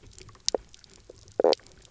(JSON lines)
{"label": "biophony, knock croak", "recorder": "SoundTrap 300"}